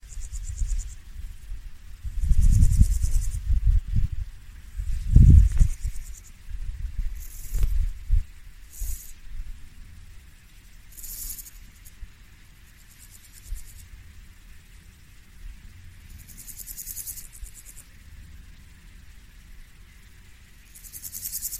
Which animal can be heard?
Pseudochorthippus parallelus, an orthopteran